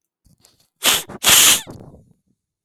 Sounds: Sniff